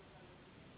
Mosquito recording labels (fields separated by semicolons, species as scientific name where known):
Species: Anopheles gambiae s.s.; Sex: female; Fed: unfed; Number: one; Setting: insect culture